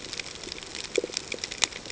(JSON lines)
{"label": "ambient", "recorder": "HydroMoth"}